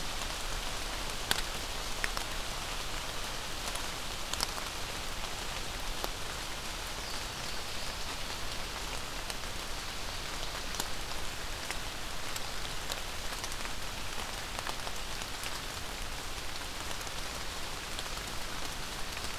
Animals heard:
forest ambience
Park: Marsh-Billings-Rockefeller National Historical Park